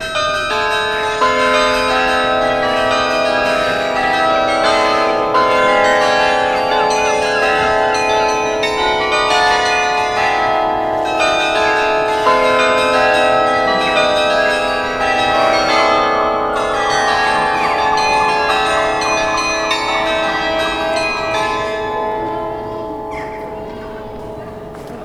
Are there a lot of bells?
yes